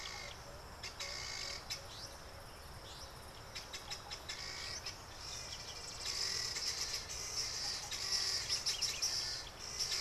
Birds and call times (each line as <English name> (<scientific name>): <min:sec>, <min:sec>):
Helmeted Guineafowl (Numida meleagris): 0:01.4, 0:06.6